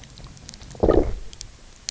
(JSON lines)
{"label": "biophony, low growl", "recorder": "SoundTrap 300"}